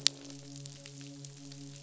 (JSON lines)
{"label": "biophony, midshipman", "recorder": "SoundTrap 500"}